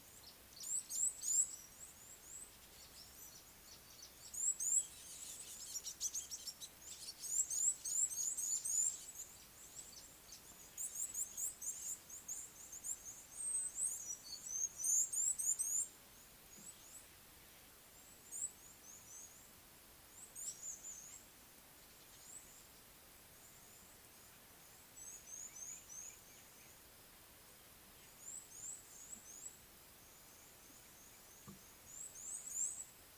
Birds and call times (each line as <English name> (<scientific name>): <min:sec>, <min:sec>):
Red-cheeked Cordonbleu (Uraeginthus bengalus): 0:01.2, 0:08.0, 0:11.8, 0:15.4, 0:25.6